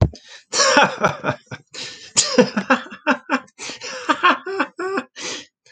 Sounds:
Laughter